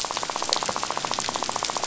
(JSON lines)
{"label": "biophony, rattle", "recorder": "SoundTrap 500"}